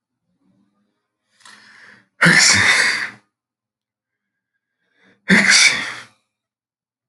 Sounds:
Sneeze